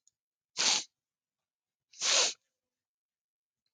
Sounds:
Sniff